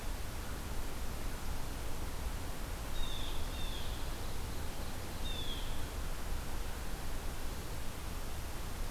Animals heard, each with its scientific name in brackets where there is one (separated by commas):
Blue Jay (Cyanocitta cristata)